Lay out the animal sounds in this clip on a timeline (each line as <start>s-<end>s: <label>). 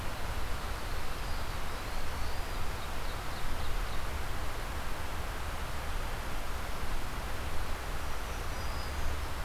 0.0s-2.0s: Ovenbird (Seiurus aurocapilla)
1.1s-2.5s: Eastern Wood-Pewee (Contopus virens)
2.0s-2.9s: Black-throated Green Warbler (Setophaga virens)
2.6s-4.2s: Ovenbird (Seiurus aurocapilla)
7.9s-9.2s: Black-throated Green Warbler (Setophaga virens)